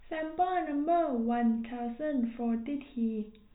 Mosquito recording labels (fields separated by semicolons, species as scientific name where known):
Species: no mosquito; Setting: cup